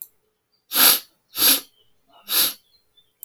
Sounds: Sniff